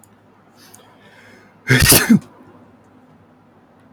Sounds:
Sneeze